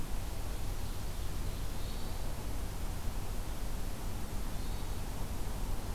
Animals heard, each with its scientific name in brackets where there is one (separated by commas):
Hermit Thrush (Catharus guttatus)